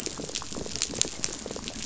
{"label": "biophony, rattle", "recorder": "SoundTrap 500"}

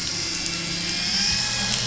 {"label": "anthrophony, boat engine", "recorder": "SoundTrap 500"}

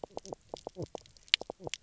{"label": "biophony, knock croak", "recorder": "SoundTrap 300"}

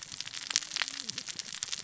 {"label": "biophony, cascading saw", "recorder": "SoundTrap 600 or HydroMoth"}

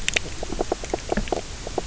{"label": "biophony, knock croak", "recorder": "SoundTrap 300"}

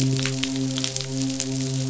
{"label": "biophony, midshipman", "recorder": "SoundTrap 500"}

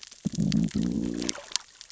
{"label": "biophony, growl", "recorder": "SoundTrap 600 or HydroMoth"}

